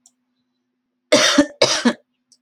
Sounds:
Cough